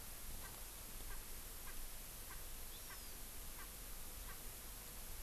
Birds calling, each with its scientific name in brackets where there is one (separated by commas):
Hawaii Amakihi (Chlorodrepanis virens), Erckel's Francolin (Pternistis erckelii)